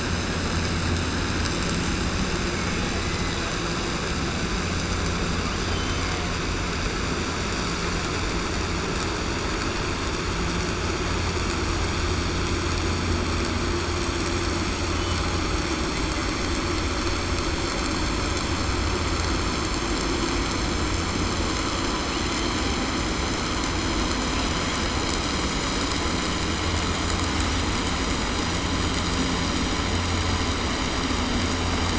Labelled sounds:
5.6	6.2	killer whale, southern resident, 2.1 to 3.7 kHz

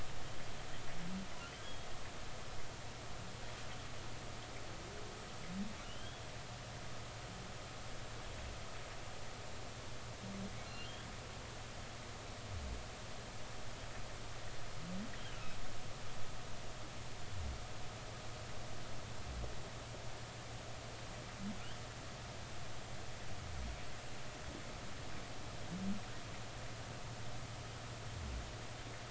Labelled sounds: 1.6	1.9	humpback whale, 3.2 to 3.4 kHz
5.8	6.2	humpback whale, 2.8 to 3.4 kHz
15.2	15.4	humpback whale, 2.8 to 3.3 kHz

